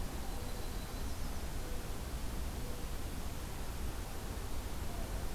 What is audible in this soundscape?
Yellow-rumped Warbler